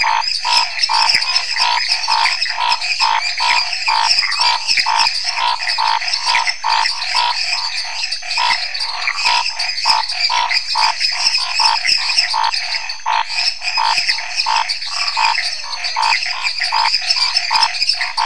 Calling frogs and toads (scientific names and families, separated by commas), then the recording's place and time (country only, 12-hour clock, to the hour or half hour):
Scinax fuscovarius (Hylidae), Boana raniceps (Hylidae), Dendropsophus minutus (Hylidae), Dendropsophus nanus (Hylidae), Phyllomedusa sauvagii (Hylidae), Physalaemus albonotatus (Leptodactylidae)
Brazil, 9pm